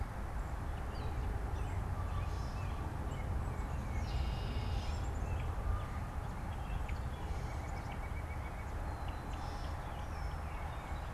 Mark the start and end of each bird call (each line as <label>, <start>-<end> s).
Gray Catbird (Dumetella carolinensis), 0.0-5.6 s
American Robin (Turdus migratorius), 0.7-3.7 s
Red-winged Blackbird (Agelaius phoeniceus), 3.6-5.2 s
American Robin (Turdus migratorius), 5.2-6.8 s
White-breasted Nuthatch (Sitta carolinensis), 7.1-8.8 s
Tufted Titmouse (Baeolophus bicolor), 9.9-11.1 s